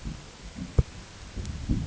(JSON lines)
{"label": "ambient", "recorder": "HydroMoth"}